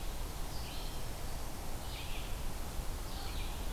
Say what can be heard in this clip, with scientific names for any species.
Vireo olivaceus